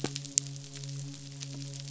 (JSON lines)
{"label": "biophony, midshipman", "recorder": "SoundTrap 500"}